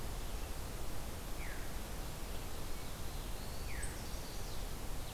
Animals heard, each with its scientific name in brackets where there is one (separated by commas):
Veery (Catharus fuscescens), Black-throated Blue Warbler (Setophaga caerulescens), Chestnut-sided Warbler (Setophaga pensylvanica)